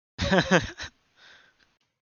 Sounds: Laughter